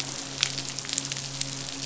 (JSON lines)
{"label": "biophony, midshipman", "recorder": "SoundTrap 500"}